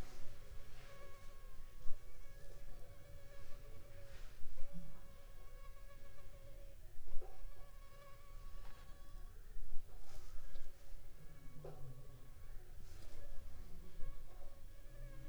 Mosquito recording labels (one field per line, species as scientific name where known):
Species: Anopheles funestus s.s.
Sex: female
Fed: unfed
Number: one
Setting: cup